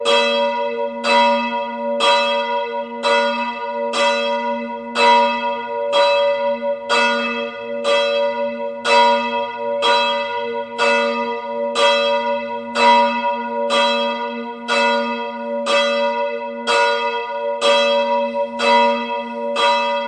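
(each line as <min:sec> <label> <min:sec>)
0:00.0 A church bell is ringing. 0:20.1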